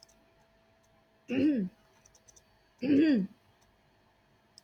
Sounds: Throat clearing